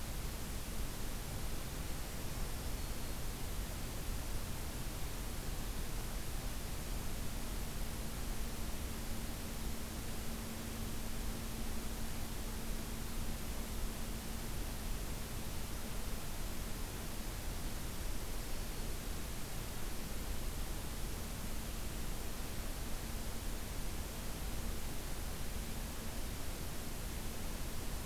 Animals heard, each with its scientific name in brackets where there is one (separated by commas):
Black-throated Green Warbler (Setophaga virens)